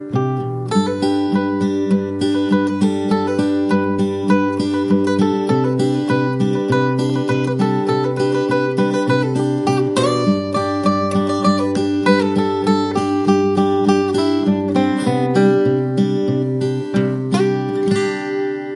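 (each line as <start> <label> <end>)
0.0 Rhythmic, soft, and relaxing acoustic guitar playing. 18.7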